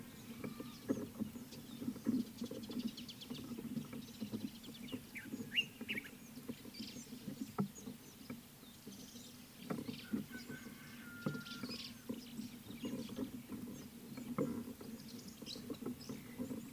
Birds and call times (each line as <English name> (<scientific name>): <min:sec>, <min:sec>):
Mariqua Sunbird (Cinnyris mariquensis): 0:02.9
Common Bulbul (Pycnonotus barbatus): 0:05.6
White-browed Sparrow-Weaver (Plocepasser mahali): 0:11.7